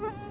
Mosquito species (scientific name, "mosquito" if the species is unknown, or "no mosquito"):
Anopheles quadriannulatus